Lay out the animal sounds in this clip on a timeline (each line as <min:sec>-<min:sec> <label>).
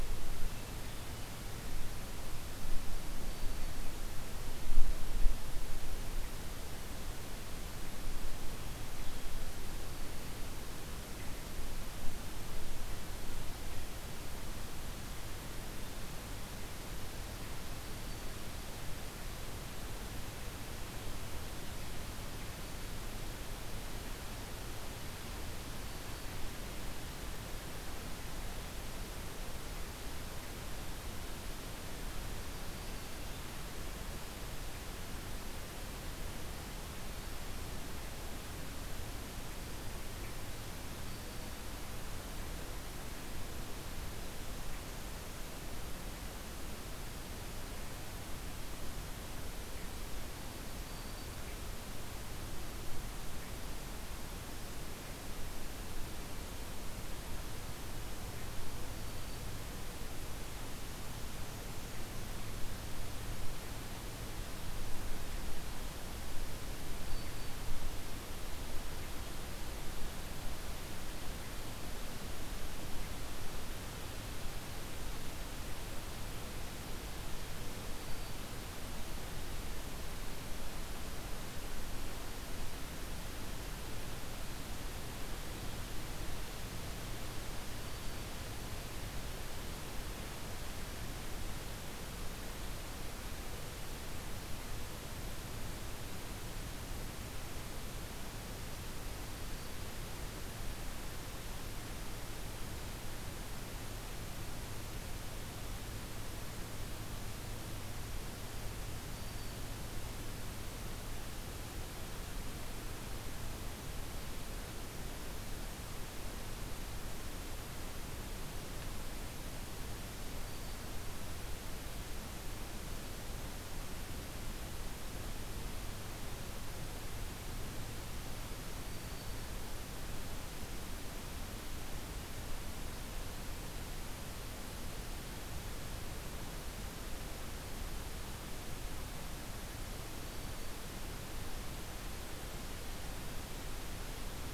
0:00.4-0:01.5 Hermit Thrush (Catharus guttatus)
0:03.1-0:03.8 Black-throated Green Warbler (Setophaga virens)
0:09.9-0:10.4 Black-throated Green Warbler (Setophaga virens)
0:17.8-0:18.6 Black-throated Green Warbler (Setophaga virens)
0:25.8-0:26.4 Black-throated Green Warbler (Setophaga virens)
0:32.7-0:33.3 Black-throated Green Warbler (Setophaga virens)
0:41.0-0:41.6 Black-throated Green Warbler (Setophaga virens)
0:50.9-0:51.5 Black-throated Green Warbler (Setophaga virens)
0:58.9-0:59.5 Black-throated Green Warbler (Setophaga virens)
1:07.0-1:07.6 Black-throated Green Warbler (Setophaga virens)
1:18.0-1:18.4 Black-throated Green Warbler (Setophaga virens)
1:27.7-1:28.3 Black-throated Green Warbler (Setophaga virens)
1:39.2-1:39.8 Black-throated Green Warbler (Setophaga virens)
1:49.1-1:49.6 Black-throated Green Warbler (Setophaga virens)
2:00.4-2:00.9 Black-throated Green Warbler (Setophaga virens)
2:08.8-2:09.5 Black-throated Green Warbler (Setophaga virens)
2:20.2-2:20.8 Black-throated Green Warbler (Setophaga virens)